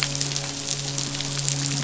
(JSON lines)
{"label": "biophony, midshipman", "recorder": "SoundTrap 500"}